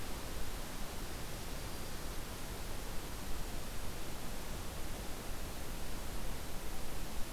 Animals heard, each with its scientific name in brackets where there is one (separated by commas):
Black-throated Green Warbler (Setophaga virens)